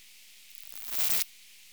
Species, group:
Poecilimon artedentatus
Orthoptera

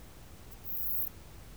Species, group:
Poecilimon sanctipauli
Orthoptera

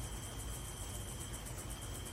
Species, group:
Microcentrum rhombifolium
Orthoptera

